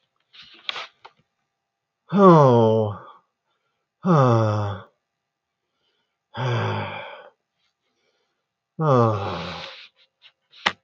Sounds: Sigh